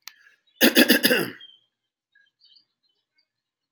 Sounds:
Cough